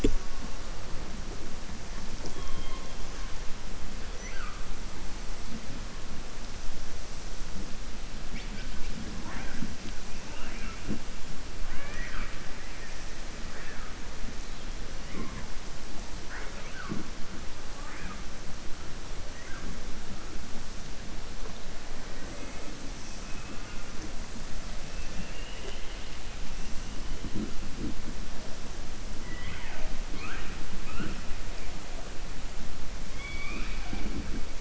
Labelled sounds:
11.6	12.4	killer whale, southern resident, 0.58 to 3.2 kHz
24.9	26.1	killer whale, southern resident, 0.40 to 3.9 kHz

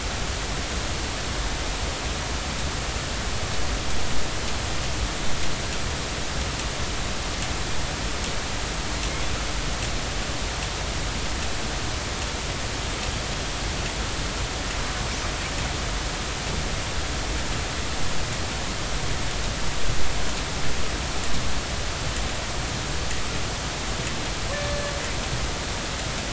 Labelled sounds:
24.5	25.0	killer whale, northern resident, A clan, AB subclan, B01 pod, call N18, 1.7 to 4.3 kHz

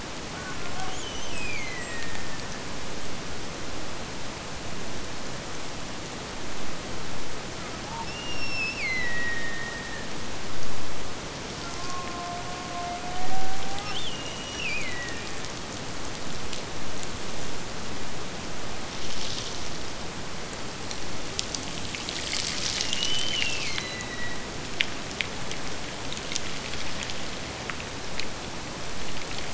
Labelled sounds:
0.3	2.7	killer whale, Bigg's (transient), Gulf of Alaska transient, 0.65 to 7.2 kHz
8.0	10.2	killer whale, Bigg's (transient), Gulf of Alaska transient, 1.7 to 5.9 kHz
11.6	15.4	killer whale, Bigg's (transient), Gulf of Alaska transient, 0.50 to 5.9 kHz
22.8	24.8	killer whale, Bigg's (transient), Gulf of Alaska transient, 1.8 to 3.1 kHz

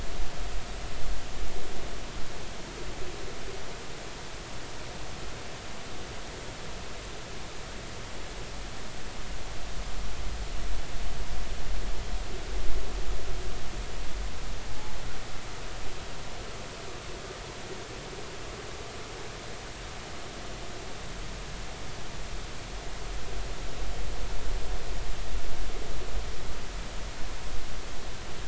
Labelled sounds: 14.7	14.9	humpback whale, 0.80 to 0.96 kHz

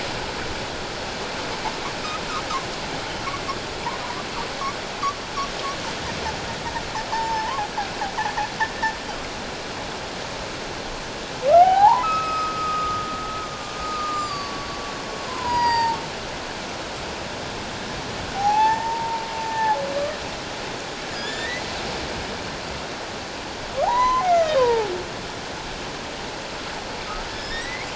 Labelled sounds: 7.1	7.6	humpback whale, 0.81 to 5.5 kHz
11.5	13.1	humpback whale, 0.78 to 5.2 kHz
13.9	16.0	humpback whale, 0.84 to 7.6 kHz
18.4	19.8	humpback whale, 0.78 to 6.4 kHz
21.2	21.6	humpback whale, 1.6 to 3.7 kHz
23.8	24.9	humpback whale, 0.78 to 6.2 kHz
27.3	27.8	humpback whale, 5.1 to 6.1 kHz

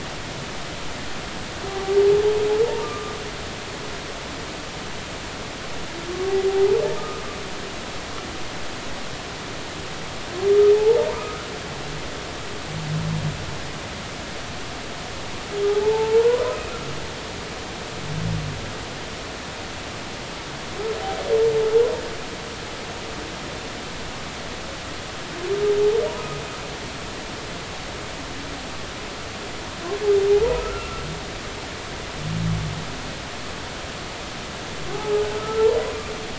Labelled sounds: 2.8	3.1	humpback whale, 1.15 to 1.25 kHz
7.0	7.2	humpback whale, 1.2 to 1.3 kHz
10.7	11.4	humpback whale, 0.80 to 1.3 kHz
15.7	16.4	humpback whale, 0.80 to 1.1 kHz
30.6	31.0	humpback whale, 1.2 to 1.4 kHz
34.9	35.7	humpback whale, 0.80 to 1.4 kHz

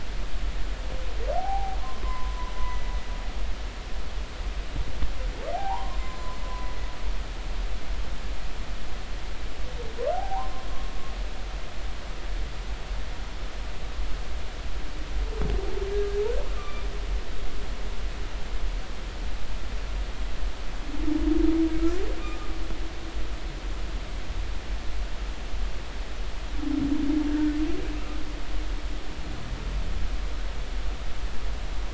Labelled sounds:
1.4	2.9	humpback whale, 0.80 to 5.2 kHz
5.5	6.7	humpback whale, 0.80 to 7.6 kHz
10.1	10.5	humpback whale, 0.80 to 1.2 kHz
16.6	16.9	humpback whale, 1.1 to 2.5 kHz
22.2	22.5	humpback whale, 1.1 to 1.3 kHz
27.9	28.2	humpback whale, 1.2 to 1.4 kHz

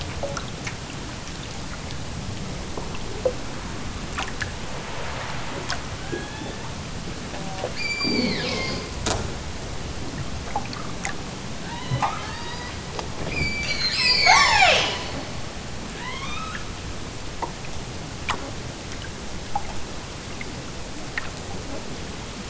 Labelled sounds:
6.0	6.6	killer whale, southern Alaska resident, 0.46 to 3.9 kHz
7.7	8.9	killer whale, southern Alaska resident, 0.73 to 8.0 kHz
11.6	12.9	killer whale, southern Alaska resident, 0.50 to 5.5 kHz
13.2	15.1	killer whale, southern Alaska resident, 0.23 to 8.0 kHz
15.9	16.7	killer whale, southern Alaska resident, 0.64 to 7.7 kHz

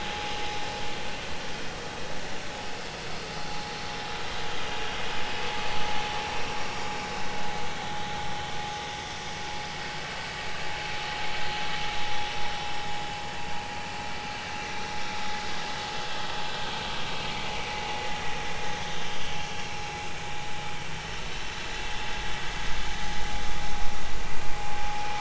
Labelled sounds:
17.2	17.5	vessel noise, 2.0 to 2.4 kHz

